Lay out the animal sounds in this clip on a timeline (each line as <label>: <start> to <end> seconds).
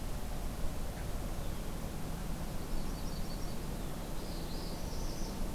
Yellow-rumped Warbler (Setophaga coronata): 2.2 to 3.7 seconds
Northern Parula (Setophaga americana): 4.0 to 5.5 seconds